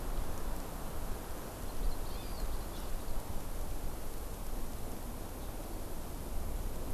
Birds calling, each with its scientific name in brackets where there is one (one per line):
Hawaii Amakihi (Chlorodrepanis virens)